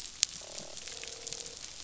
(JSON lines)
{"label": "biophony, croak", "recorder": "SoundTrap 500"}